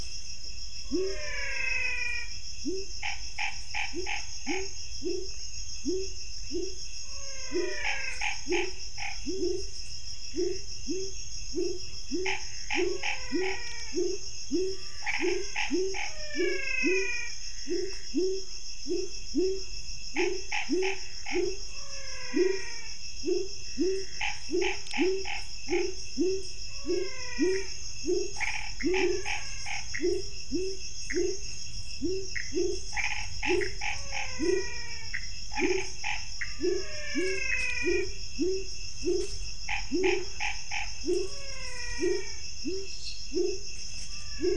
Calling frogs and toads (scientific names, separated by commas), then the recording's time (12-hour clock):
Physalaemus albonotatus, Leptodactylus labyrinthicus, Boana raniceps, Pithecopus azureus, Dendropsophus nanus
7:15pm